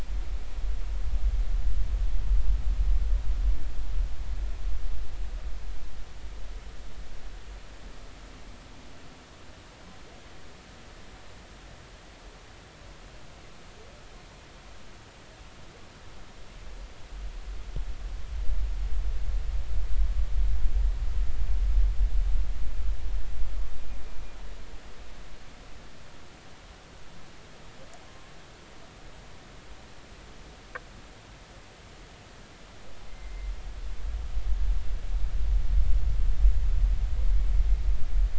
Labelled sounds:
28.0	28.3	humpback whale, 0.99 to 1.1 kHz
33.1	33.5	humpback whale, 2.0 to 2.3 kHz

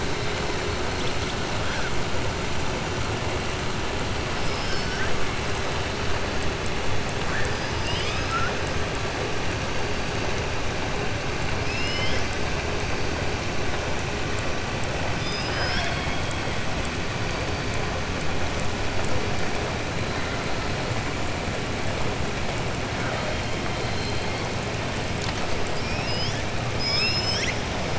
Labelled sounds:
4.4	5.0	killer whale, southern resident, 4.4 to 5.9 kHz
7.5	8.6	killer whale, southern resident, 1.3 to 5.9 kHz
11.6	12.4	killer whale, southern resident, 2.0 to 7.8 kHz
15.1	16.4	killer whale, southern resident, 0.69 to 5.7 kHz
26.7	27.6	killer whale, southern resident, 1.7 to 7.9 kHz

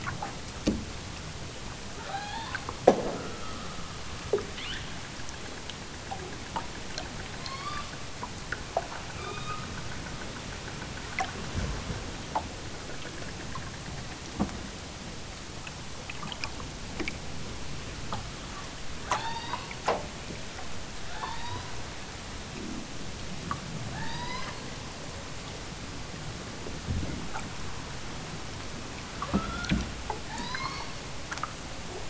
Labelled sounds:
1.9	2.7	killer whale, southern Alaska resident, 0.41 to 5.2 kHz
4.4	4.9	killer whale, southern Alaska resident, 0.78 to 5.1 kHz
7.4	7.9	killer whale, southern Alaska resident, 0.78 to 6.1 kHz
9.0	9.7	killer whale, southern Alaska resident, 0.78 to 5.8 kHz
19.1	19.7	killer whale, southern Alaska resident, 0.46 to 6.1 kHz
21.0	21.8	killer whale, southern Alaska resident, 0.50 to 5.6 kHz
23.9	24.6	killer whale, southern Alaska resident, 0.50 to 6.7 kHz
29.2	29.8	killer whale, southern Alaska resident, 0.92 to 3.9 kHz
30.2	30.9	killer whale, southern Alaska resident, 0.50 to 7.4 kHz

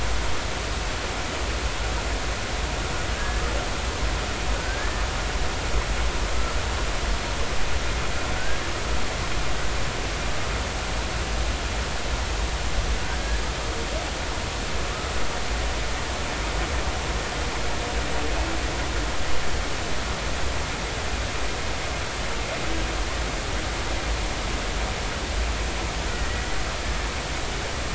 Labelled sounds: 3.1	3.4	humpback whale, 1.6 to 1.8 kHz
4.5	5.0	humpback whale, 1.4 to 1.9 kHz
26.1	26.5	humpback whale, 1.8 to 2.0 kHz

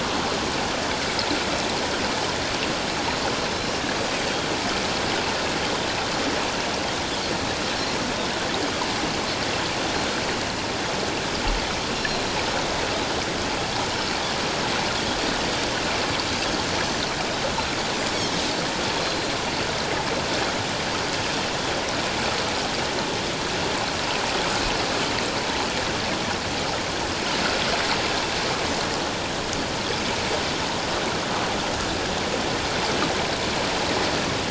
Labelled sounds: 11.9	12.2	Pacific white-sided dolphin, 4.1 to 5.6 kHz
16.9	17.2	Pacific white-sided dolphin, 5.8 to 6.0 kHz
19.0	19.4	Pacific white-sided dolphin, 4.1 to 4.2 kHz

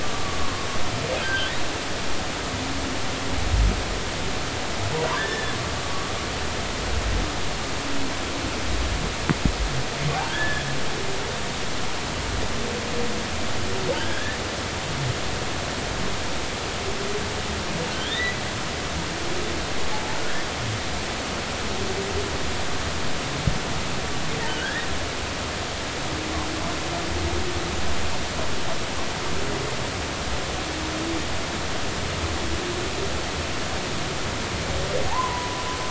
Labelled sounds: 0.0	0.7	humpback whale, 1.0 to 1.2 kHz
1.2	1.5	humpback whale, 1.4 to 1.6 kHz
5.2	5.5	humpback whale, 1.5 to 3.6 kHz
10.3	10.7	humpback whale, 1.4 to 1.9 kHz
14.0	14.4	humpback whale, 1.4 to 1.9 kHz
17.9	18.4	humpback whale, 1.7 to 4.0 kHz
24.5	24.9	humpback whale, 1.4 to 2.0 kHz
35.1	35.6	humpback whale, 0.80 to 1.1 kHz

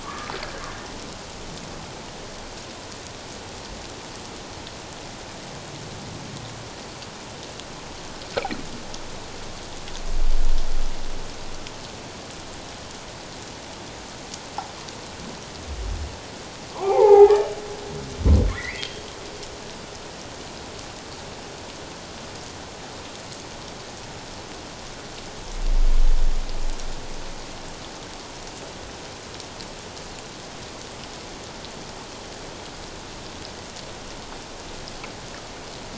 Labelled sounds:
0.0	0.3	humpback whale, 1.0 to 1.3 kHz
16.7	17.5	humpback whale, 0.78 to 2.2 kHz
18.5	19.0	humpback whale, 1.7 to 3.3 kHz

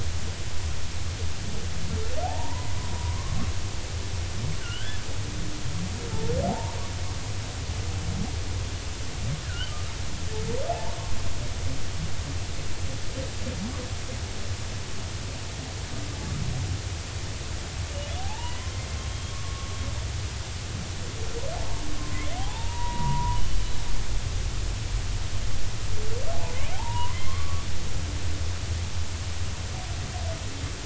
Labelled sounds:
2.2	3.4	humpback whale, 0.80 to 2.0 kHz
4.6	5.0	humpback whale, 1.3 to 3.2 kHz
6.5	6.8	humpback whale, 0.80 to 1.2 kHz
9.4	9.9	humpback whale, 1.2 to 1.7 kHz
10.7	10.9	humpback whale, 0.80 to 0.99 kHz
18.2	19.7	humpback whale, 0.80 to 1.2 kHz
22.4	23.4	humpback whale, 0.80 to 3.9 kHz
26.7	27.7	humpback whale, 0.80 to 3.3 kHz

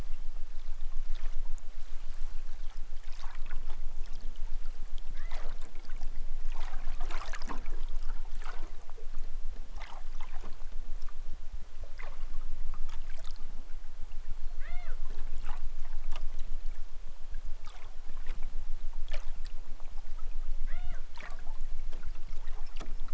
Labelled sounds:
5.0	5.5	killer whale, southern Alaska resident, 0.73 to 2.7 kHz
14.6	15.0	killer whale, southern Alaska resident, 0.23 to 4.9 kHz
20.6	21.0	killer whale, southern Alaska resident, 0.28 to 6.2 kHz

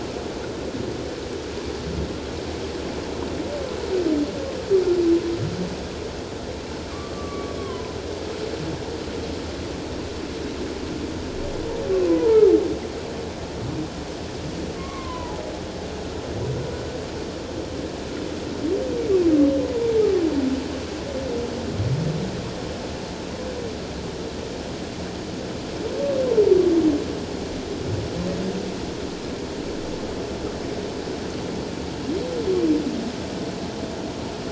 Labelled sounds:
6.9	8.0	humpback whale, 0.88 to 1.2 kHz
12.1	12.4	humpback whale, 0.84 to 1.1 kHz
14.8	15.4	humpback whale, 0.81 to 2.3 kHz

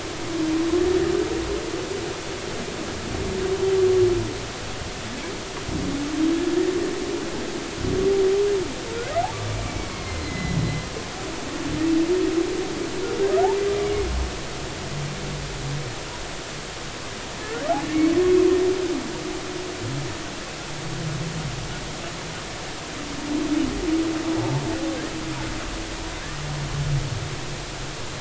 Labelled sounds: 9.9	10.6	humpback whale, 1.0 to 4.4 kHz
13.8	14.1	humpback whale, 2.1 to 2.3 kHz
24.4	24.6	humpback whale, 0.80 to 0.93 kHz

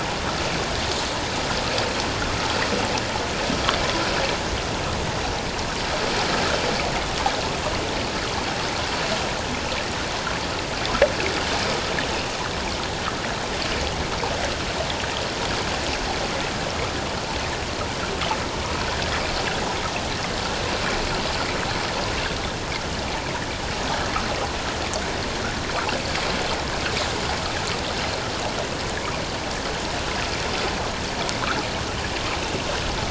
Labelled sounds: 20.8	21.0	water noise, 2.2 to 2.4 kHz

